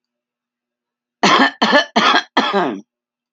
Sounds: Cough